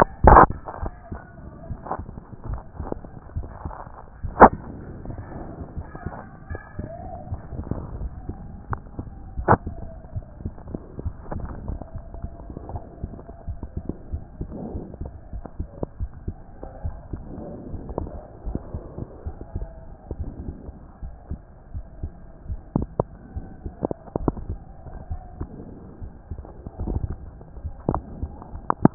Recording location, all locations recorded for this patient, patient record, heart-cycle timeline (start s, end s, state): aortic valve (AV)
aortic valve (AV)+pulmonary valve (PV)+tricuspid valve (TV)+mitral valve (MV)
#Age: Child
#Sex: Male
#Height: 131.0 cm
#Weight: 25.3 kg
#Pregnancy status: False
#Murmur: Absent
#Murmur locations: nan
#Most audible location: nan
#Systolic murmur timing: nan
#Systolic murmur shape: nan
#Systolic murmur grading: nan
#Systolic murmur pitch: nan
#Systolic murmur quality: nan
#Diastolic murmur timing: nan
#Diastolic murmur shape: nan
#Diastolic murmur grading: nan
#Diastolic murmur pitch: nan
#Diastolic murmur quality: nan
#Outcome: Abnormal
#Campaign: 2014 screening campaign
0.00	16.00	unannotated
16.00	16.10	S1
16.10	16.26	systole
16.26	16.36	S2
16.36	16.84	diastole
16.84	16.96	S1
16.96	17.12	systole
17.12	17.22	S2
17.22	17.70	diastole
17.70	17.82	S1
17.82	18.00	systole
18.00	18.10	S2
18.10	18.46	diastole
18.46	18.58	S1
18.58	18.74	systole
18.74	18.83	S2
18.83	19.26	diastole
19.26	19.36	S1
19.36	19.56	systole
19.56	19.68	S2
19.68	20.18	diastole
20.18	20.30	S1
20.30	20.44	systole
20.44	20.56	S2
20.56	21.02	diastole
21.02	21.14	S1
21.14	21.30	systole
21.30	21.40	S2
21.40	21.74	diastole
21.74	21.84	S1
21.84	22.02	systole
22.02	22.12	S2
22.12	22.48	diastole
22.48	28.94	unannotated